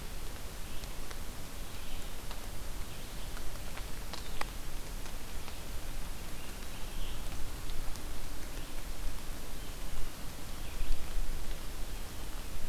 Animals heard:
forest ambience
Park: Marsh-Billings-Rockefeller National Historical Park